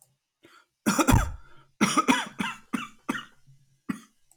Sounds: Cough